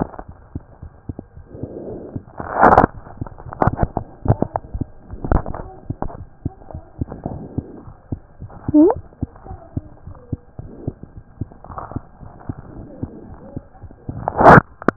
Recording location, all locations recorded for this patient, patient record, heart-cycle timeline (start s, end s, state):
mitral valve (MV)
aortic valve (AV)+pulmonary valve (PV)+tricuspid valve (TV)+mitral valve (MV)
#Age: Child
#Sex: Male
#Height: 95.0 cm
#Weight: 15.9 kg
#Pregnancy status: False
#Murmur: Absent
#Murmur locations: nan
#Most audible location: nan
#Systolic murmur timing: nan
#Systolic murmur shape: nan
#Systolic murmur grading: nan
#Systolic murmur pitch: nan
#Systolic murmur quality: nan
#Diastolic murmur timing: nan
#Diastolic murmur shape: nan
#Diastolic murmur grading: nan
#Diastolic murmur pitch: nan
#Diastolic murmur quality: nan
#Outcome: Normal
#Campaign: 2015 screening campaign
0.00	8.94	unannotated
8.94	9.03	S1
9.03	9.19	systole
9.19	9.27	S2
9.27	9.48	diastole
9.48	9.58	S1
9.58	9.74	systole
9.74	9.82	S2
9.82	10.04	diastole
10.04	10.15	S1
10.15	10.29	systole
10.29	10.40	S2
10.40	10.58	diastole
10.58	10.67	S1
10.67	10.84	systole
10.84	10.94	S2
10.94	11.14	diastole
11.14	11.24	S1
11.24	11.38	systole
11.38	11.47	S2
11.47	11.67	diastole
11.67	11.77	S1
11.77	11.93	systole
11.93	12.03	S2
12.03	12.20	diastole
12.20	12.32	S1
12.32	12.45	systole
12.45	12.55	S2
12.55	12.73	diastole
12.73	12.84	S1
12.84	12.99	systole
12.99	13.10	S2
13.10	13.28	diastole
13.28	13.38	S1
13.38	13.53	systole
13.53	13.63	S2
13.63	13.80	diastole
13.80	13.90	S1
13.90	14.05	systole
14.05	14.14	S2
14.14	14.96	unannotated